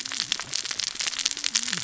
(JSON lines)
{"label": "biophony, cascading saw", "recorder": "SoundTrap 600 or HydroMoth"}